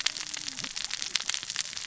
{"label": "biophony, cascading saw", "recorder": "SoundTrap 600 or HydroMoth"}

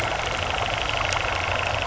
{"label": "anthrophony, boat engine", "recorder": "SoundTrap 300"}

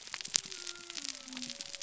{"label": "biophony", "recorder": "SoundTrap 300"}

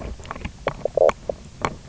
{"label": "biophony, knock croak", "recorder": "SoundTrap 300"}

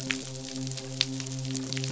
{"label": "biophony, midshipman", "recorder": "SoundTrap 500"}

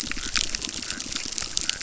{"label": "biophony, chorus", "recorder": "SoundTrap 600"}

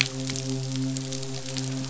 {"label": "biophony, midshipman", "recorder": "SoundTrap 500"}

